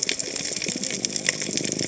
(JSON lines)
{"label": "biophony, cascading saw", "recorder": "HydroMoth"}